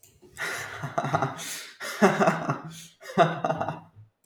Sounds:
Laughter